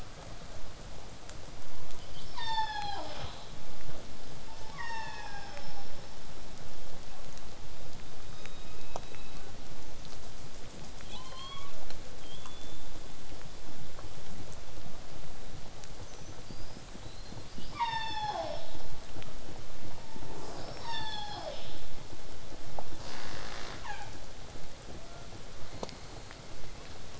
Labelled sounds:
2.1	3.5	killer whale, southern resident, call S36, 0.18 to 8.0 kHz
4.5	6.1	killer whale, southern resident, call S36, 0.45 to 7.6 kHz
11.0	11.8	killer whale, southern resident, 0.58 to 4.6 kHz
12.2	12.9	killer whale, southern resident, whistle, 3.1 to 3.6 kHz
16.0	17.5	killer whale, southern resident, whistle, 3.7 to 6.4 kHz
17.6	18.8	killer whale, southern resident, call S36, 0.27 to 8.0 kHz
20.6	21.8	killer whale, southern resident, call S36, 0.27 to 8.0 kHz
22.9	24.2	killer whale, southern resident, call S37ii, 0.13 to 8.0 kHz
24.9	25.3	killer whale, southern resident, 0.54 to 1.5 kHz

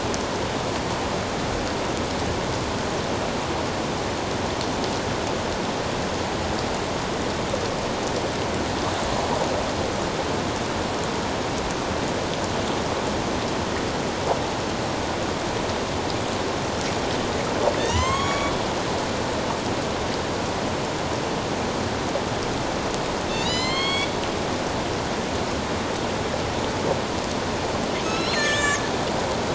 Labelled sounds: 17.8	18.5	killer whale, northern resident, A clan, AB subclan, 0.88 to 7.8 kHz
23.3	24.1	killer whale, northern resident, A clan, AB subclan, 0.97 to 7.7 kHz
28.0	28.8	killer whale, northern resident, A clan, AB subclan, 1.1 to 7.8 kHz

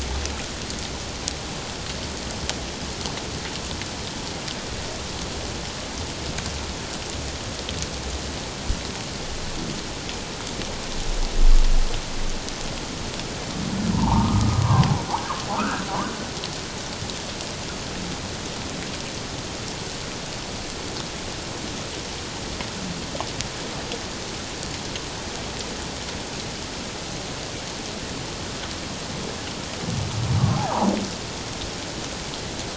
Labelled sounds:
13.9	15.9	humpback whale, 0.78 to 1.7 kHz
30.6	30.9	humpback whale, 0.78 to 1.1 kHz

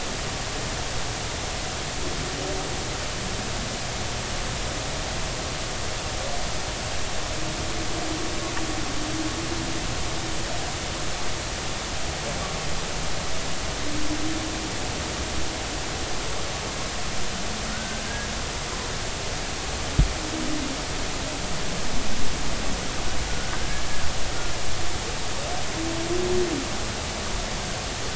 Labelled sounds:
17.7	18.0	humpback whale, 1.4 to 1.6 kHz

